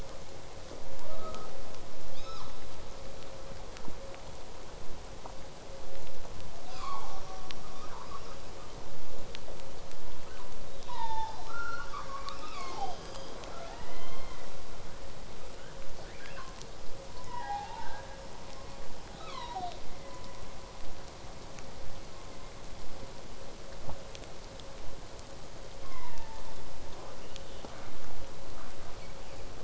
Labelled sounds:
1.0	1.5	killer whale, southern resident, 0.32 to 1.4 kHz
6.7	7.2	killer whale, southern resident, 0.74 to 8.0 kHz
7.6	8.8	killer whale, southern resident, call S10, 0.78 to 5.8 kHz
10.2	10.5	killer whale, southern resident, 0.74 to 3.1 kHz
10.8	12.9	killer whale, southern resident, 0.41 to 8.0 kHz
13.4	14.5	killer whale, southern resident, J pod, call S44, 0.29 to 4.5 kHz
14.8	15.7	killer whale, southern resident, 1.2 to 3.4 kHz
19.1	19.8	killer whale, southern resident, 0.46 to 7.1 kHz
20.8	25.8	vessel noise, 0 to 8.0 kHz
27.0	27.9	killer whale, southern resident, 0.46 to 3.3 kHz

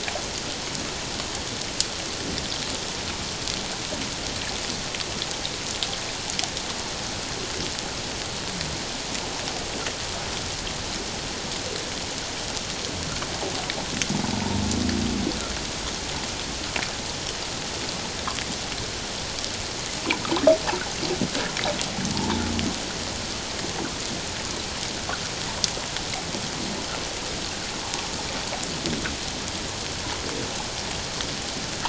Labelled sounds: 22.1	22.4	humpback whale, 0.84 to 1.2 kHz

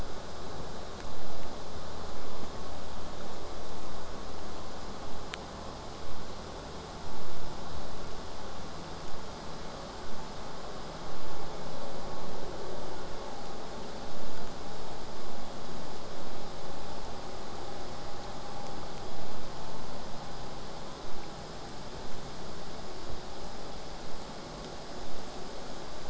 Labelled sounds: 21.0	26.0	vessel noise, 0 to 8.0 kHz

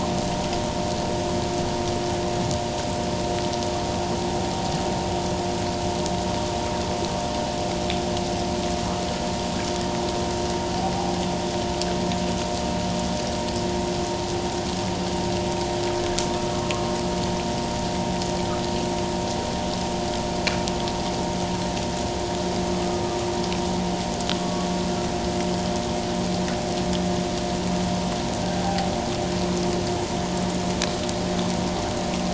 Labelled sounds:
16.3	16.6	humpback whale, 1.2 to 1.3 kHz
24.3	24.7	humpback whale, 1.1 to 1.2 kHz
28.6	28.9	humpback whale, 0.78 to 0.84 kHz

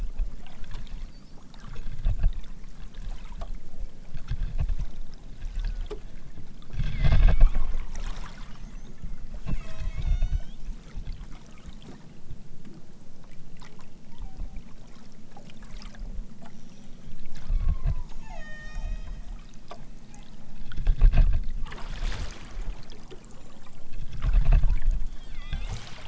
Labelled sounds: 5.3	5.9	killer whale, southern Alaska resident, 0.87 to 2.2 kHz
6.9	7.8	killer whale, southern Alaska resident, 0.69 to 5.1 kHz
9.5	10.6	killer whale, southern Alaska resident, 0.46 to 8.0 kHz
14.0	14.7	killer whale, southern Alaska resident, 0.55 to 3.2 kHz
17.5	19.3	killer whale, southern Alaska resident, 0.41 to 8.0 kHz
20.0	20.4	killer whale, southern Alaska resident, 0.69 to 4.8 kHz
24.6	25.0	killer whale, southern Alaska resident, 0.46 to 3.8 kHz
25.3	25.7	killer whale, southern Alaska resident, 0.92 to 4.7 kHz

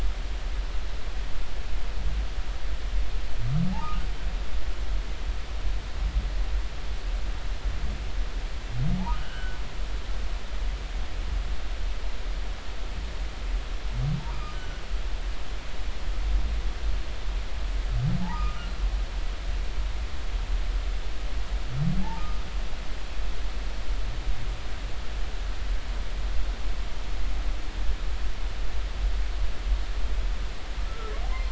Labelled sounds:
9.1	9.6	humpback whale, 1.3 to 3.2 kHz
14.3	14.8	humpback whale, 1.1 to 1.6 kHz
18.2	18.7	humpback whale, 0.80 to 1.5 kHz
22.1	22.4	humpback whale, 1.2 to 1.3 kHz
30.9	31.1	humpback whale, 1.2 to 1.4 kHz

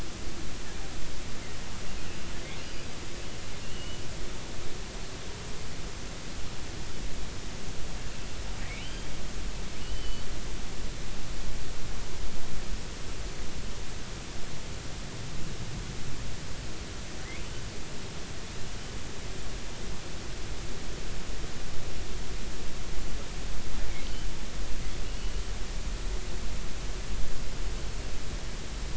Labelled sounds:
3.6	4.0	killer whale, offshore, 2.7 to 3.0 kHz
8.8	9.1	killer whale, offshore, 2.8 to 3.2 kHz
9.8	10.2	killer whale, offshore, 2.8 to 3.1 kHz
25.0	25.4	killer whale, offshore, 2.6 to 3.0 kHz

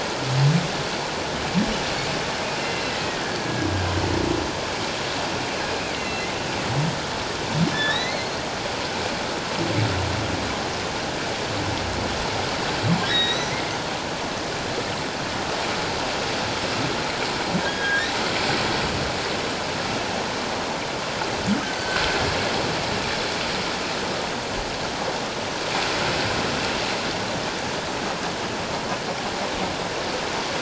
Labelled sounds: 2.6	3.7	humpback whale, 1.6 to 2.8 kHz
5.7	6.3	humpback whale, 2.2 to 4.2 kHz
7.7	8.3	humpback whale, 1.6 to 4.5 kHz
13.0	13.5	humpback whale, 1.5 to 4.1 kHz
17.6	18.1	humpback whale, 1.5 to 3.3 kHz
21.6	22.0	humpback whale, 1.4 to 1.6 kHz

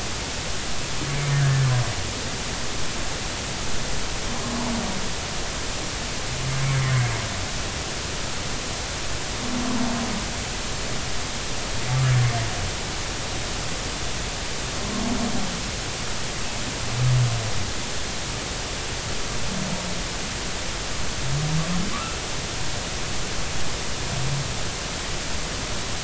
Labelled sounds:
21.9	22.2	humpback whale, 1.0 to 1.5 kHz

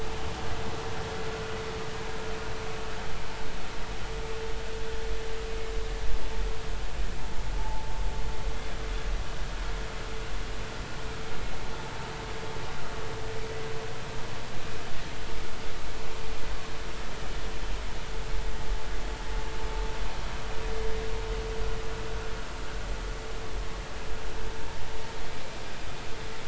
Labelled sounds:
7.6	7.9	vessel noise, 0.80 to 0.93 kHz

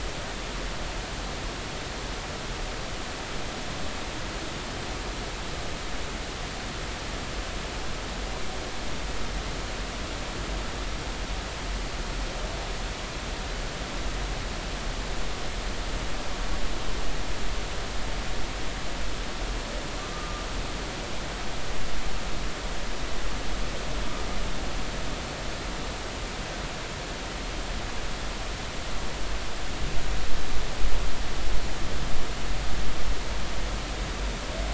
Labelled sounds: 21.1	21.5	humpback whale, 1.2 to 1.3 kHz

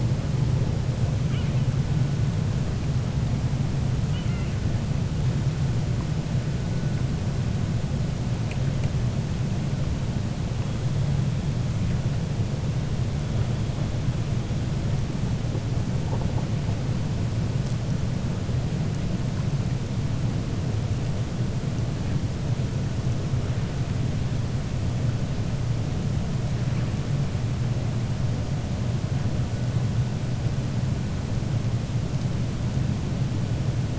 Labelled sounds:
4.0	4.5	killer whale, 1.4 to 3.4 kHz

